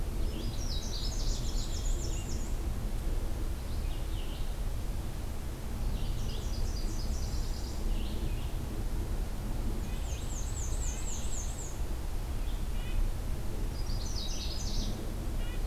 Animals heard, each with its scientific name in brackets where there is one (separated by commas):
Red-breasted Nuthatch (Sitta canadensis), Red-eyed Vireo (Vireo olivaceus), Black-and-white Warbler (Mniotilta varia), Nashville Warbler (Leiothlypis ruficapilla), Canada Warbler (Cardellina canadensis)